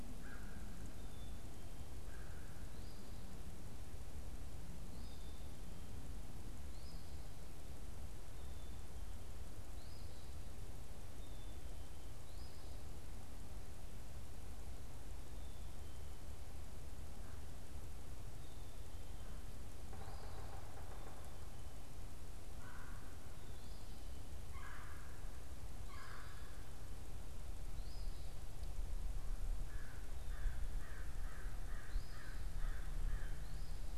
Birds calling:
Red-bellied Woodpecker (Melanerpes carolinus), Eastern Phoebe (Sayornis phoebe), Black-capped Chickadee (Poecile atricapillus), American Crow (Corvus brachyrhynchos), Yellow-bellied Sapsucker (Sphyrapicus varius)

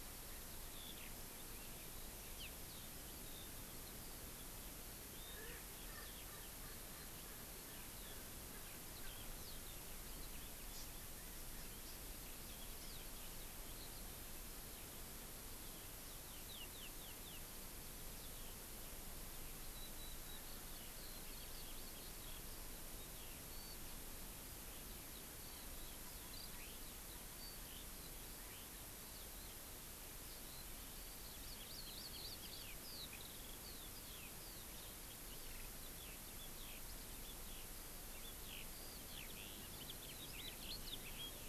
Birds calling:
Eurasian Skylark (Alauda arvensis), Hawaii Amakihi (Chlorodrepanis virens), House Finch (Haemorhous mexicanus), Erckel's Francolin (Pternistis erckelii)

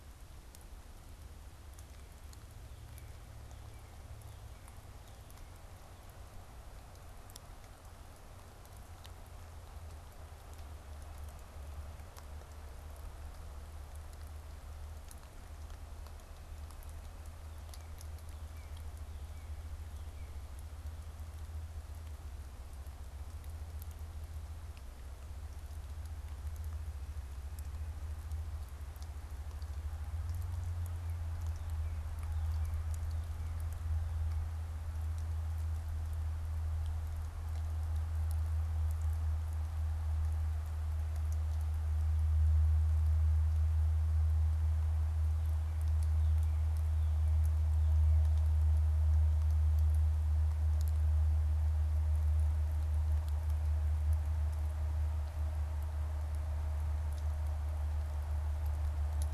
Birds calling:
Northern Cardinal (Cardinalis cardinalis)

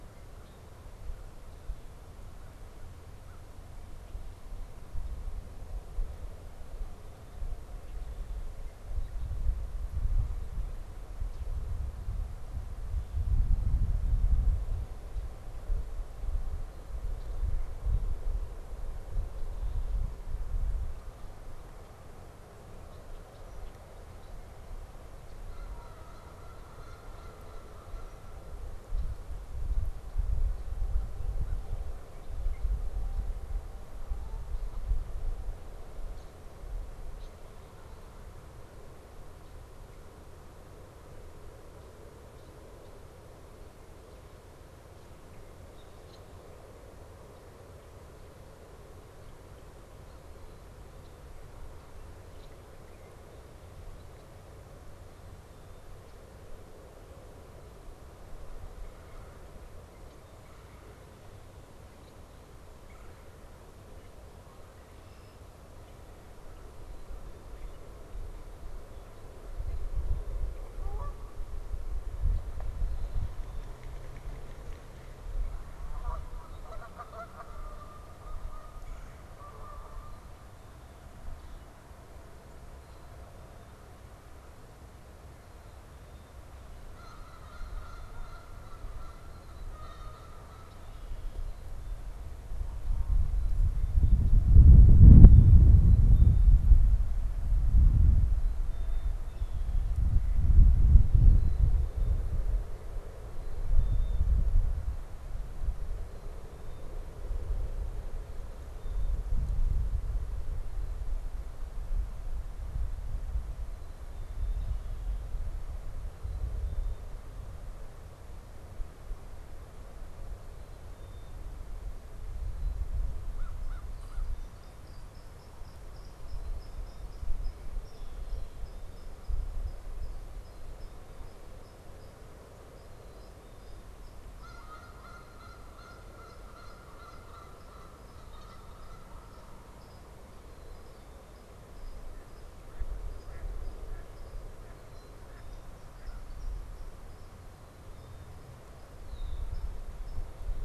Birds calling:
American Crow (Corvus brachyrhynchos), Mallard (Anas platyrhynchos), Black-capped Chickadee (Poecile atricapillus), Red-winged Blackbird (Agelaius phoeniceus), Canada Goose (Branta canadensis), Red-bellied Woodpecker (Melanerpes carolinus)

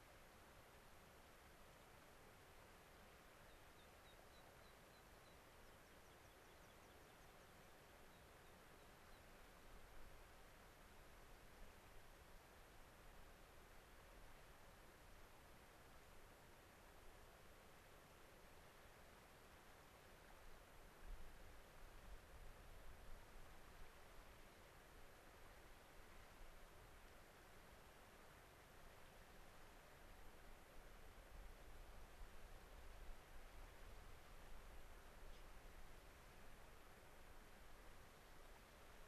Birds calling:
unidentified bird, American Pipit (Anthus rubescens)

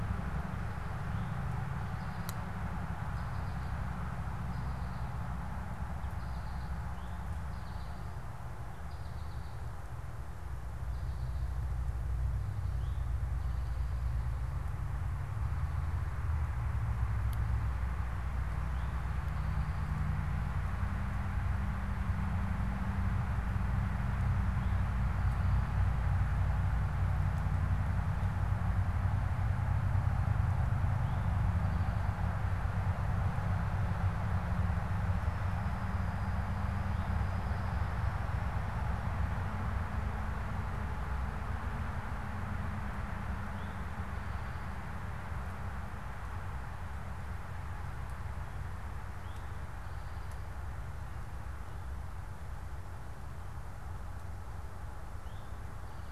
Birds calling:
American Goldfinch (Spinus tristis), Eastern Towhee (Pipilo erythrophthalmus)

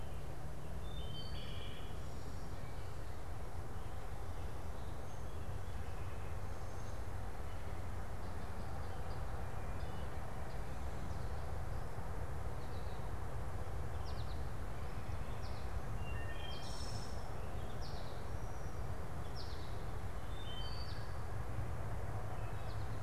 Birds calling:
American Goldfinch (Spinus tristis), Wood Thrush (Hylocichla mustelina)

